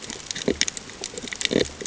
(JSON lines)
{"label": "ambient", "recorder": "HydroMoth"}